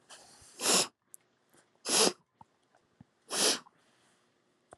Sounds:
Sniff